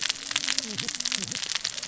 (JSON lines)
{"label": "biophony, cascading saw", "recorder": "SoundTrap 600 or HydroMoth"}